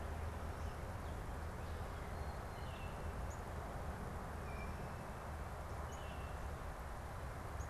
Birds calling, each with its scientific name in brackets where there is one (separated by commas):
Baltimore Oriole (Icterus galbula), Northern Cardinal (Cardinalis cardinalis)